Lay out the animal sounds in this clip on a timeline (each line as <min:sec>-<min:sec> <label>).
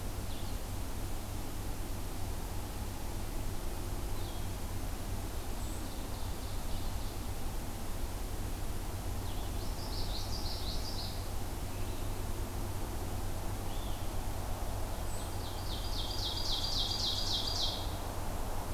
0:00.0-0:18.7 Blue-headed Vireo (Vireo solitarius)
0:05.4-0:07.0 Ovenbird (Seiurus aurocapilla)
0:09.6-0:11.3 Common Yellowthroat (Geothlypis trichas)
0:15.1-0:18.0 Ovenbird (Seiurus aurocapilla)